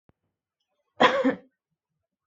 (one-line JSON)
{"expert_labels": [{"quality": "good", "cough_type": "unknown", "dyspnea": false, "wheezing": false, "stridor": false, "choking": false, "congestion": false, "nothing": true, "diagnosis": "upper respiratory tract infection", "severity": "unknown"}], "age": 27, "gender": "female", "respiratory_condition": false, "fever_muscle_pain": false, "status": "symptomatic"}